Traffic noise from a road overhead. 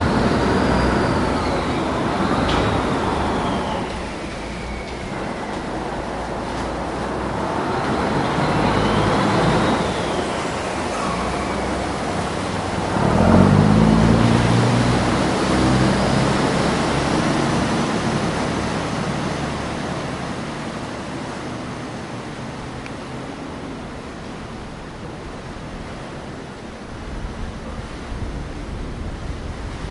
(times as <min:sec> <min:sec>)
0:19.2 0:29.9